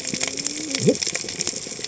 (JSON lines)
{"label": "biophony, cascading saw", "recorder": "HydroMoth"}